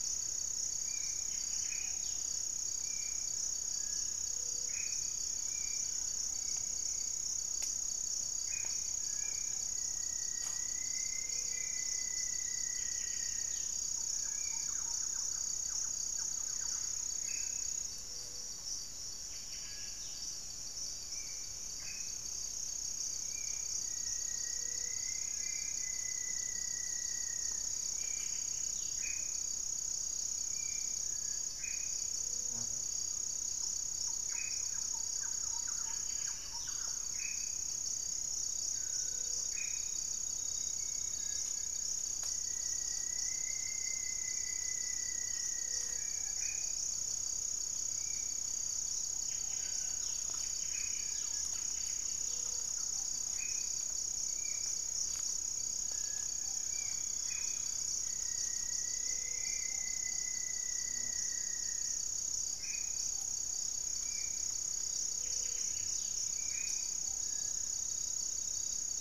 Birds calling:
Gray-fronted Dove (Leptotila rufaxilla), Rufous-fronted Antthrush (Formicarius rufifrons), Cinereous Tinamou (Crypturellus cinereus), unidentified bird, Ruddy Pigeon (Patagioenas subvinacea), Black-faced Antthrush (Formicarius analis), Spot-winged Antshrike (Pygiptila stellaris), Thrush-like Wren (Campylorhynchus turdinus), Ringed Woodpecker (Celeus torquatus), Buff-breasted Wren (Cantorchilus leucotis)

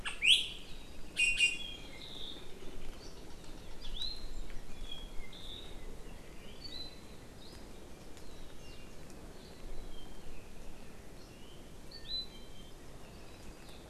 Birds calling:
Iiwi (Drepanis coccinea), Apapane (Himatione sanguinea)

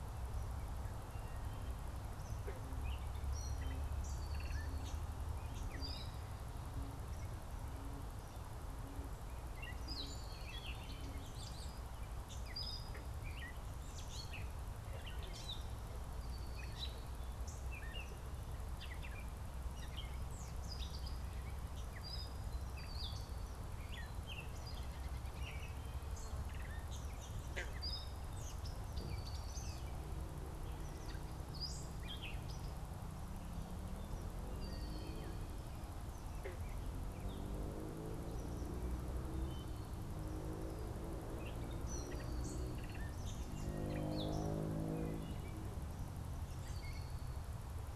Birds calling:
unidentified bird, Eastern Kingbird (Tyrannus tyrannus), American Robin (Turdus migratorius), Red-winged Blackbird (Agelaius phoeniceus), Gray Catbird (Dumetella carolinensis), Wood Thrush (Hylocichla mustelina)

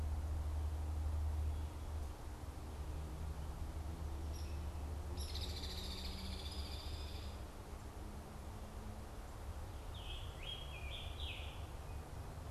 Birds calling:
Hairy Woodpecker (Dryobates villosus), Scarlet Tanager (Piranga olivacea)

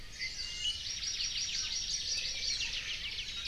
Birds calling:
Warbling White-eye (Zosterops japonicus), Apapane (Himatione sanguinea), Iiwi (Drepanis coccinea), Hawaii Amakihi (Chlorodrepanis virens)

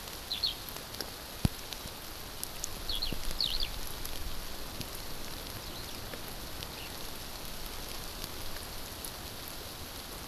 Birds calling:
Eurasian Skylark (Alauda arvensis)

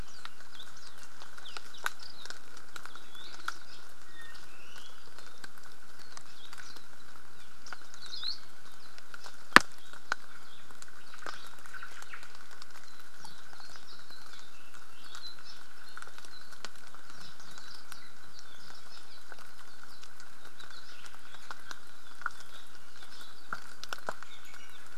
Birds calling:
Omao (Myadestes obscurus), Apapane (Himatione sanguinea), Warbling White-eye (Zosterops japonicus), Iiwi (Drepanis coccinea), Hawaii Akepa (Loxops coccineus)

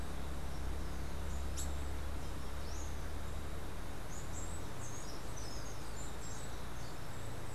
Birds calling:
Steely-vented Hummingbird (Saucerottia saucerottei)

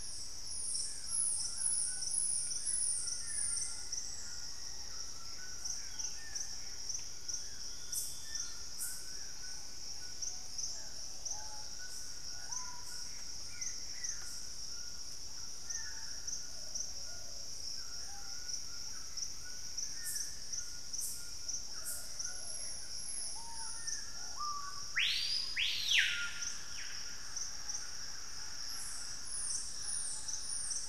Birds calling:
Black-spotted Bare-eye (Phlegopsis nigromaculata), Black-faced Antthrush (Formicarius analis), Gray Antbird (Cercomacra cinerascens), Ruddy Pigeon (Patagioenas subvinacea), Gilded Barbet (Capito auratus), White-throated Toucan (Ramphastos tucanus), Screaming Piha (Lipaugus vociferans), Dusky-throated Antshrike (Thamnomanes ardesiacus), Plumbeous Pigeon (Patagioenas plumbea)

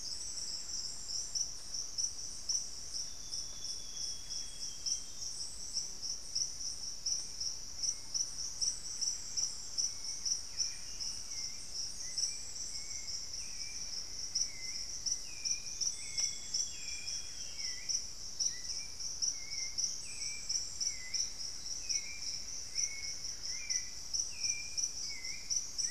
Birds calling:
Hauxwell's Thrush (Turdus hauxwelli), Black-faced Antthrush (Formicarius analis), Amazonian Grosbeak (Cyanoloxia rothschildii), Cinnamon-throated Woodcreeper (Dendrexetastes rufigula), Buff-breasted Wren (Cantorchilus leucotis)

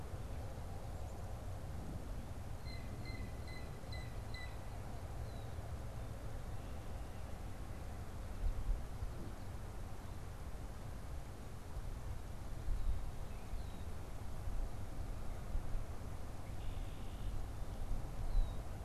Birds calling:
Blue Jay (Cyanocitta cristata), Red-winged Blackbird (Agelaius phoeniceus)

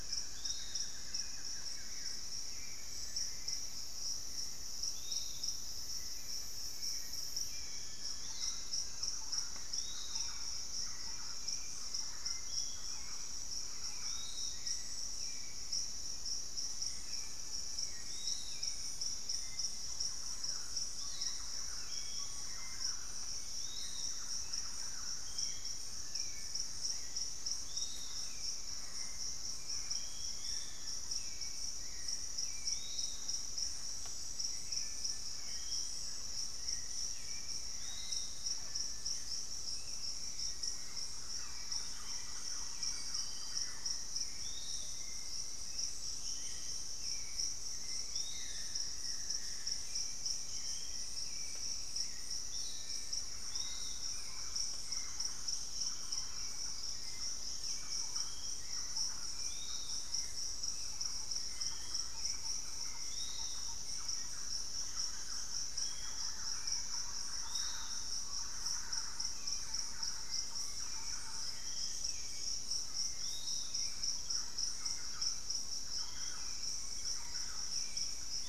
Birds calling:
Buff-throated Woodcreeper (Xiphorhynchus guttatus), Black-faced Antthrush (Formicarius analis), Pygmy Antwren (Myrmotherula brachyura), Thrush-like Wren (Campylorhynchus turdinus), Hauxwell's Thrush (Turdus hauxwelli), Piratic Flycatcher (Legatus leucophaius)

